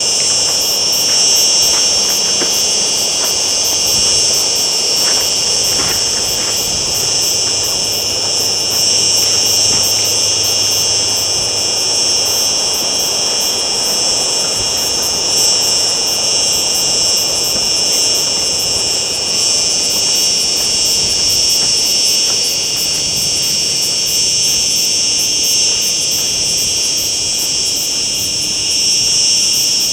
Does the same sound keep playing?
yes